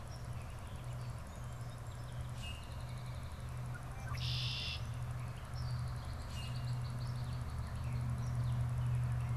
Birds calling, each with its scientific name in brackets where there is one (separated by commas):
Red-winged Blackbird (Agelaius phoeniceus), Common Grackle (Quiscalus quiscula)